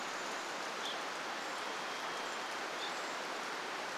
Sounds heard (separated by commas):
Brown Creeper call, rain, Evening Grosbeak call, Varied Thrush song, Chestnut-backed Chickadee call